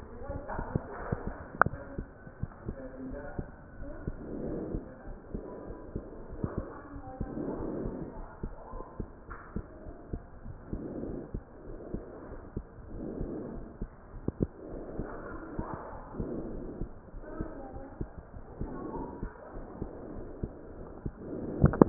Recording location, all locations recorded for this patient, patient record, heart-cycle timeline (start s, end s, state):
aortic valve (AV)
aortic valve (AV)+pulmonary valve (PV)+tricuspid valve (TV)+mitral valve (MV)
#Age: Child
#Sex: Female
#Height: nan
#Weight: nan
#Pregnancy status: False
#Murmur: Absent
#Murmur locations: nan
#Most audible location: nan
#Systolic murmur timing: nan
#Systolic murmur shape: nan
#Systolic murmur grading: nan
#Systolic murmur pitch: nan
#Systolic murmur quality: nan
#Diastolic murmur timing: nan
#Diastolic murmur shape: nan
#Diastolic murmur grading: nan
#Diastolic murmur pitch: nan
#Diastolic murmur quality: nan
#Outcome: Normal
#Campaign: 2015 screening campaign
0.00	8.04	unannotated
8.04	8.14	diastole
8.14	8.26	S1
8.26	8.38	systole
8.38	8.52	S2
8.52	8.71	diastole
8.71	8.82	S1
8.82	8.98	systole
8.98	9.08	S2
9.08	9.28	diastole
9.28	9.38	S1
9.38	9.54	systole
9.54	9.66	S2
9.66	9.81	diastole
9.81	9.93	S1
9.93	10.10	systole
10.10	10.24	S2
10.24	10.42	diastole
10.42	10.55	S1
10.55	10.69	systole
10.69	10.83	S2
10.83	11.01	diastole
11.01	11.18	S1
11.18	11.29	systole
11.29	11.43	S2
11.43	11.65	diastole
11.65	11.82	S1
11.82	11.91	systole
11.91	12.06	S2
12.06	12.25	diastole
12.25	12.42	S1
12.42	12.55	systole
12.55	12.66	S2
12.66	12.86	diastole
12.86	13.01	S1
13.01	13.17	systole
13.17	13.29	S2
13.29	13.51	diastole
13.51	13.67	S1
13.67	13.81	systole
13.81	13.89	S2
13.89	14.10	diastole
14.10	21.89	unannotated